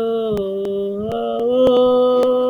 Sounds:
Sigh